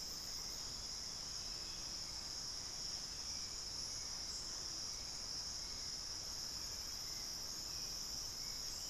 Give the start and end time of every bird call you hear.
[0.00, 8.89] Hauxwell's Thrush (Turdus hauxwelli)

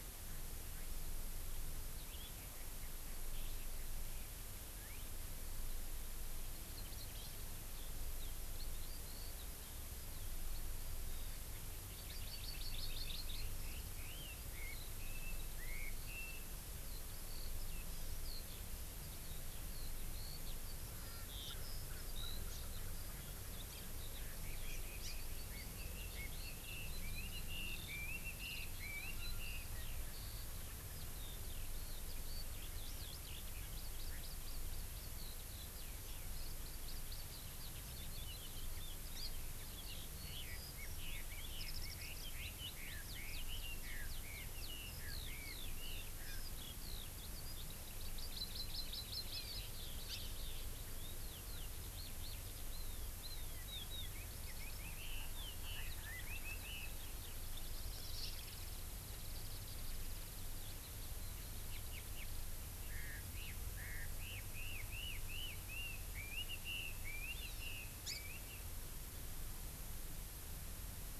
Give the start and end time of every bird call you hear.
[6.69, 7.29] Hawaii Amakihi (Chlorodrepanis virens)
[7.69, 11.39] Eurasian Skylark (Alauda arvensis)
[11.89, 16.49] Red-billed Leiothrix (Leiothrix lutea)
[11.99, 13.39] Hawaii Amakihi (Chlorodrepanis virens)
[14.69, 22.39] Eurasian Skylark (Alauda arvensis)
[20.99, 23.59] Erckel's Francolin (Pternistis erckelii)
[22.49, 22.59] Hawaii Amakihi (Chlorodrepanis virens)
[22.89, 56.99] Eurasian Skylark (Alauda arvensis)
[24.19, 29.69] Red-billed Leiothrix (Leiothrix lutea)
[24.99, 25.09] Hawaii Amakihi (Chlorodrepanis virens)
[33.69, 35.09] Hawaii Amakihi (Chlorodrepanis virens)
[39.19, 39.29] Hawaii Amakihi (Chlorodrepanis virens)
[40.19, 46.39] Red-billed Leiothrix (Leiothrix lutea)
[47.99, 49.59] Hawaii Amakihi (Chlorodrepanis virens)
[50.09, 50.29] Hawaii Amakihi (Chlorodrepanis virens)
[53.99, 56.89] Red-billed Leiothrix (Leiothrix lutea)
[57.59, 60.69] Warbling White-eye (Zosterops japonicus)
[62.79, 68.59] Red-billed Leiothrix (Leiothrix lutea)
[67.39, 67.79] Hawaii Amakihi (Chlorodrepanis virens)
[68.09, 68.19] Hawaii Amakihi (Chlorodrepanis virens)

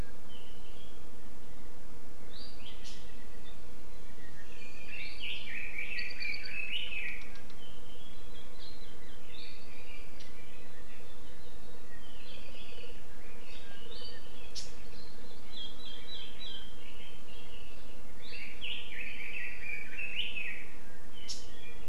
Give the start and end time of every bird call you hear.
[4.20, 7.30] Red-billed Leiothrix (Leiothrix lutea)
[9.30, 10.20] Apapane (Himatione sanguinea)
[12.20, 13.00] Apapane (Himatione sanguinea)
[18.20, 20.80] Red-billed Leiothrix (Leiothrix lutea)

